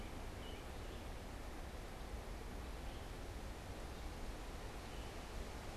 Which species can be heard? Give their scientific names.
Turdus migratorius, Vireo olivaceus